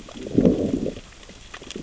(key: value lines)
label: biophony, growl
recorder: SoundTrap 600 or HydroMoth